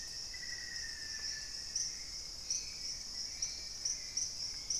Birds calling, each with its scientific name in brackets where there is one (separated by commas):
Black-faced Antthrush (Formicarius analis), Hauxwell's Thrush (Turdus hauxwelli)